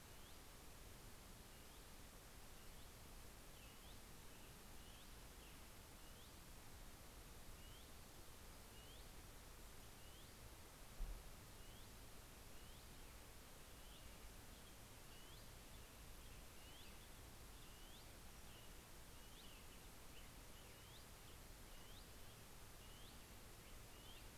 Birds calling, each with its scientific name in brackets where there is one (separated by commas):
Hutton's Vireo (Vireo huttoni)